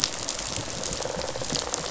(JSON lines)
{"label": "biophony, rattle response", "recorder": "SoundTrap 500"}